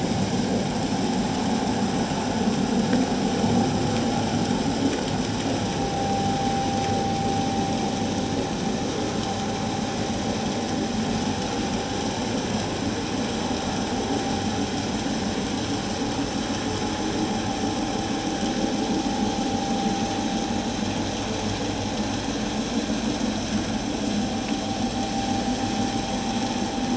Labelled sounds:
5.9	6.4	vessel noise, 0.78 to 0.84 kHz

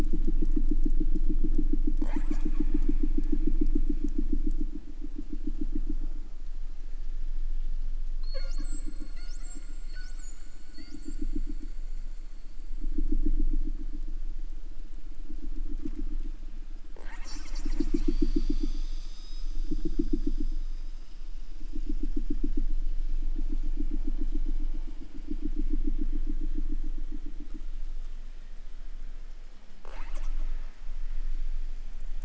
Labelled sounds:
1.9	3.5	killer whale, southern resident, 0.42 to 8.0 kHz
8.1	11.3	killer whale, southern resident, J pod, call S42, 0.17 to 8.0 kHz
16.9	19.6	killer whale, 0.29 to 8.0 kHz
29.8	30.8	killer whale, southern resident, call S08ii, 0.15 to 8.0 kHz

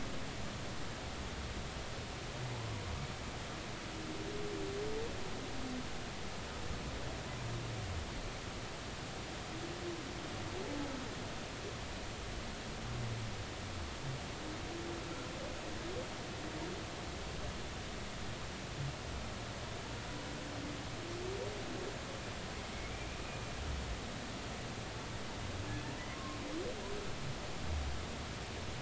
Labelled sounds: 26.1	26.4	humpback whale, 1.0 to 1.2 kHz

